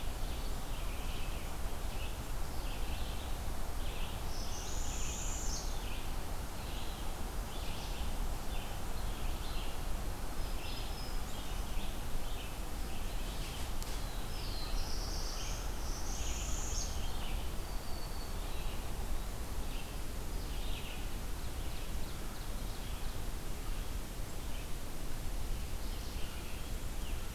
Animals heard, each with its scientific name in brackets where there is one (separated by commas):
Red-eyed Vireo (Vireo olivaceus), Black-throated Blue Warbler (Setophaga caerulescens), Northern Parula (Setophaga americana), Ovenbird (Seiurus aurocapilla), Black-throated Green Warbler (Setophaga virens), American Crow (Corvus brachyrhynchos)